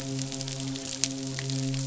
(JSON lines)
{"label": "biophony, midshipman", "recorder": "SoundTrap 500"}